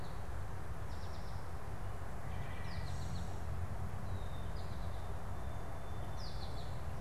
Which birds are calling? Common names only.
American Goldfinch, Red-winged Blackbird, Song Sparrow